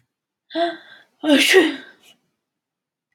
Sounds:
Sneeze